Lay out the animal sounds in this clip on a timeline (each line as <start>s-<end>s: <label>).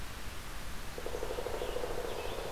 0.7s-2.5s: Pileated Woodpecker (Dryocopus pileatus)
1.1s-2.5s: Scarlet Tanager (Piranga olivacea)